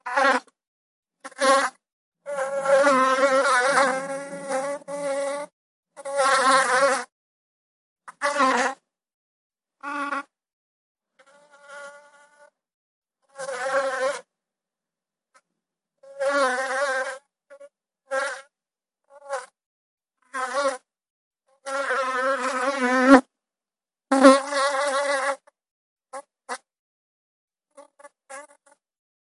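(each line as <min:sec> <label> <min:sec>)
0:00.1 A fly buzzing loudly nearby. 0:00.5
0:01.3 A fly buzzing loudly nearby. 0:07.1
0:08.0 A fly buzzing loudly nearby. 0:10.3
0:11.0 A fly approaches with increasing buzz. 0:12.9
0:13.3 A fly buzzing loudly nearby. 0:14.3
0:16.2 A fly buzzing repeatedly. 0:20.9
0:21.6 A fly landing nearby. 0:23.3
0:24.0 A fly is flying away with the sound gradually decreasing. 0:29.2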